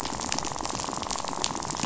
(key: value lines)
label: biophony, rattle
recorder: SoundTrap 500